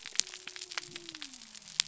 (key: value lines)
label: biophony
recorder: SoundTrap 300